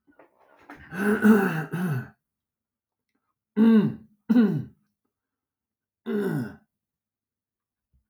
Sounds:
Throat clearing